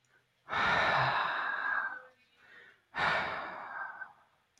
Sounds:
Sigh